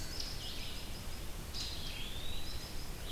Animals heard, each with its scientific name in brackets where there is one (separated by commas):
Eastern Wood-Pewee (Contopus virens), Red-eyed Vireo (Vireo olivaceus), American Robin (Turdus migratorius)